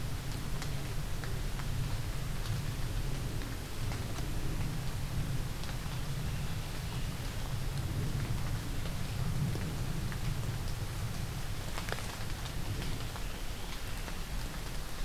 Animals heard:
forest ambience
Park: Hubbard Brook Experimental Forest